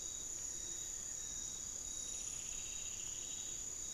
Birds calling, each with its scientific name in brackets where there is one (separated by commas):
Striped Woodcreeper (Xiphorhynchus obsoletus), Amazonian Barred-Woodcreeper (Dendrocolaptes certhia)